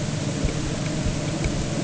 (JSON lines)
{"label": "anthrophony, boat engine", "recorder": "HydroMoth"}